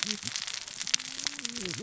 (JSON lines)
{"label": "biophony, cascading saw", "recorder": "SoundTrap 600 or HydroMoth"}